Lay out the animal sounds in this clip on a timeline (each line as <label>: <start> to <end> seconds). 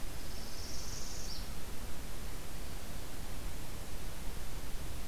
Northern Parula (Setophaga americana): 0.0 to 1.5 seconds